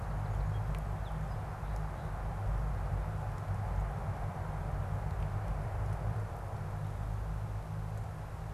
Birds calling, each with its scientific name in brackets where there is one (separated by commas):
Song Sparrow (Melospiza melodia)